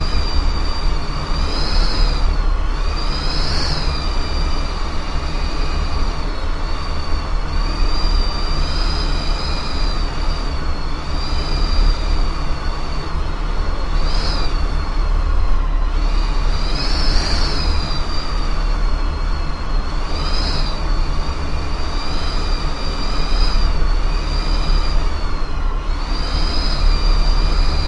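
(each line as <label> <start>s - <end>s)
Whistling wind gradually increases in volume and then fades away. 0.0s - 27.9s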